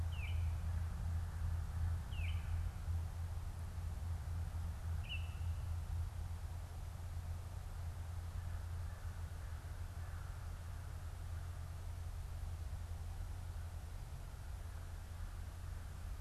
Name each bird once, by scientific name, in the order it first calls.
Icterus galbula, Corvus brachyrhynchos